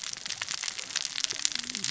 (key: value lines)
label: biophony, cascading saw
recorder: SoundTrap 600 or HydroMoth